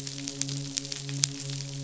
{"label": "biophony, midshipman", "recorder": "SoundTrap 500"}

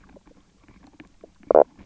{"label": "biophony, knock croak", "recorder": "SoundTrap 300"}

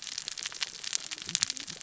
{"label": "biophony, cascading saw", "recorder": "SoundTrap 600 or HydroMoth"}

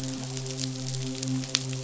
{"label": "biophony, midshipman", "recorder": "SoundTrap 500"}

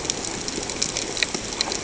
{"label": "ambient", "recorder": "HydroMoth"}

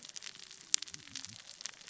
{"label": "biophony, cascading saw", "recorder": "SoundTrap 600 or HydroMoth"}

